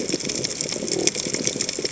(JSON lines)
{"label": "biophony", "recorder": "HydroMoth"}